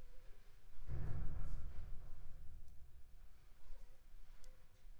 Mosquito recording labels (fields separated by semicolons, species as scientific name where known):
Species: Anopheles funestus s.s.; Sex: female; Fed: unfed; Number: one; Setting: cup